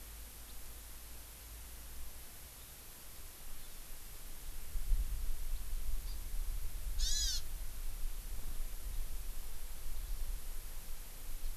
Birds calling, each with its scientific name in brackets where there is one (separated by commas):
House Finch (Haemorhous mexicanus), Hawaii Amakihi (Chlorodrepanis virens)